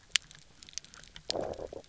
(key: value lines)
label: biophony, low growl
recorder: SoundTrap 300